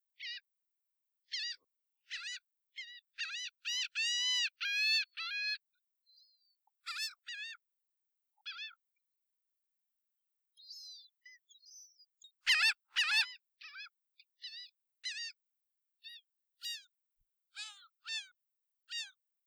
Is there any pause in the squawking?
yes